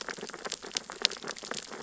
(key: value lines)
label: biophony, sea urchins (Echinidae)
recorder: SoundTrap 600 or HydroMoth